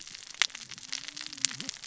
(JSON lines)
{"label": "biophony, cascading saw", "recorder": "SoundTrap 600 or HydroMoth"}